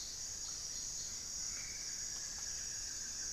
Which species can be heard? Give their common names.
Buff-throated Woodcreeper